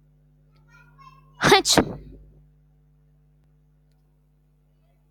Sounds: Sneeze